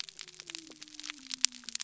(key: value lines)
label: biophony
recorder: SoundTrap 300